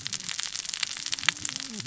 {"label": "biophony, cascading saw", "recorder": "SoundTrap 600 or HydroMoth"}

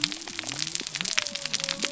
{"label": "biophony", "recorder": "SoundTrap 300"}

